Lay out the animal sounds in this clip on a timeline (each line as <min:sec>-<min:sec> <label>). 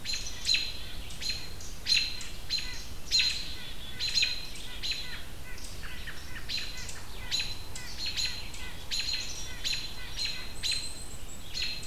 0:00.0-0:11.9 American Robin (Turdus migratorius)
0:00.0-0:11.9 White-breasted Nuthatch (Sitta carolinensis)
0:10.4-0:11.5 Black-capped Chickadee (Poecile atricapillus)